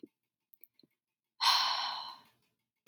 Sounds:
Sigh